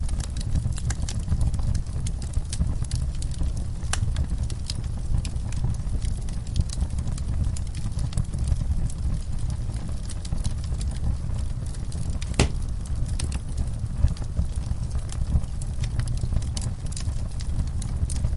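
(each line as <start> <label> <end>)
0.0 A muffled, continuous flame burns. 18.4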